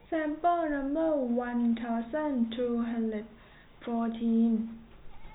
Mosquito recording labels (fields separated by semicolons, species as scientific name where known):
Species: no mosquito; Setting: cup